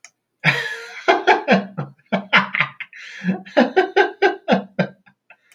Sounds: Laughter